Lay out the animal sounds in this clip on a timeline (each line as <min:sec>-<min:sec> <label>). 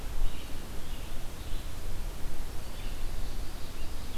0:00.0-0:01.9 Blue-headed Vireo (Vireo solitarius)
0:02.4-0:04.2 Red-eyed Vireo (Vireo olivaceus)
0:02.9-0:04.2 Ovenbird (Seiurus aurocapilla)